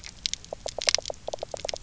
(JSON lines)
{"label": "biophony, knock croak", "recorder": "SoundTrap 300"}